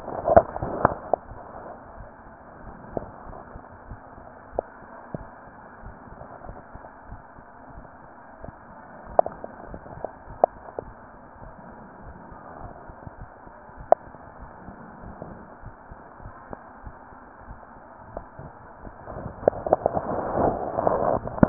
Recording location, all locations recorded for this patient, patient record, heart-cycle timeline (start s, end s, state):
mitral valve (MV)
pulmonary valve (PV)+tricuspid valve (TV)+mitral valve (MV)
#Age: Child
#Sex: Female
#Height: nan
#Weight: nan
#Pregnancy status: False
#Murmur: Absent
#Murmur locations: nan
#Most audible location: nan
#Systolic murmur timing: nan
#Systolic murmur shape: nan
#Systolic murmur grading: nan
#Systolic murmur pitch: nan
#Systolic murmur quality: nan
#Diastolic murmur timing: nan
#Diastolic murmur shape: nan
#Diastolic murmur grading: nan
#Diastolic murmur pitch: nan
#Diastolic murmur quality: nan
#Outcome: Abnormal
#Campaign: 2015 screening campaign
0.00	15.62	unannotated
15.62	15.76	S1
15.76	15.90	systole
15.90	15.98	S2
15.98	16.22	diastole
16.22	16.32	S1
16.32	16.50	systole
16.50	16.64	S2
16.64	16.84	diastole
16.84	16.98	S1
16.98	17.18	systole
17.18	17.28	S2
17.28	17.48	diastole
17.48	17.58	S1
17.58	17.76	systole
17.76	17.90	S2
17.90	18.10	diastole
18.10	18.24	S1
18.24	18.40	systole
18.40	18.50	S2
18.50	18.70	diastole
18.70	21.49	unannotated